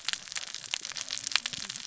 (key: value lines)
label: biophony, cascading saw
recorder: SoundTrap 600 or HydroMoth